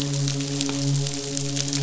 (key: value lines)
label: biophony, midshipman
recorder: SoundTrap 500